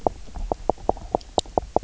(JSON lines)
{"label": "biophony, knock croak", "recorder": "SoundTrap 300"}